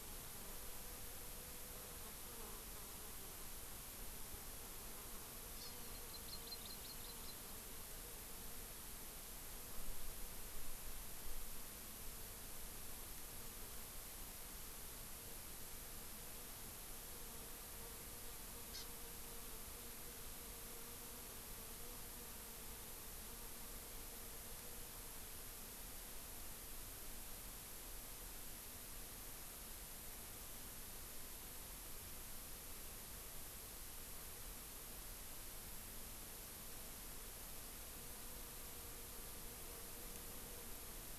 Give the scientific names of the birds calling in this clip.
Chlorodrepanis virens